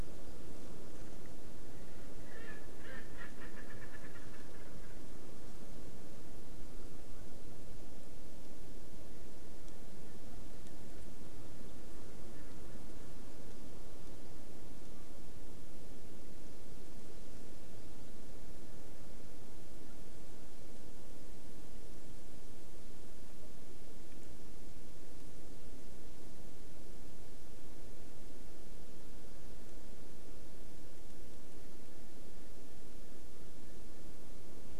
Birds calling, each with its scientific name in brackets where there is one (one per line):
Erckel's Francolin (Pternistis erckelii)